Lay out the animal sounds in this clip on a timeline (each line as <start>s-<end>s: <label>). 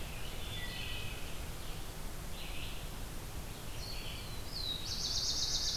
0.0s-5.8s: Red-eyed Vireo (Vireo olivaceus)
0.2s-1.4s: Wood Thrush (Hylocichla mustelina)
3.9s-5.8s: Black-throated Blue Warbler (Setophaga caerulescens)